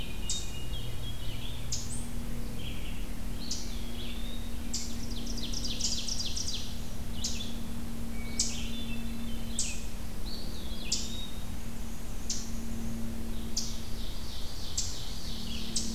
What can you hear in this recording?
Hermit Thrush, Eastern Chipmunk, Red-eyed Vireo, Eastern Wood-Pewee, Ovenbird, Black-and-white Warbler